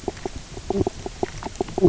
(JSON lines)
{"label": "biophony, knock croak", "recorder": "SoundTrap 300"}